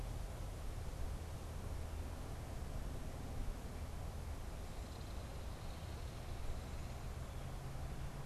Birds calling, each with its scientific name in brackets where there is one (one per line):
Belted Kingfisher (Megaceryle alcyon)